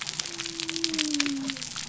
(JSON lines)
{"label": "biophony", "recorder": "SoundTrap 300"}